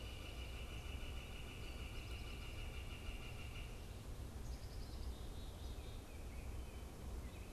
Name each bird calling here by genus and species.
Colaptes auratus, Poecile atricapillus, Baeolophus bicolor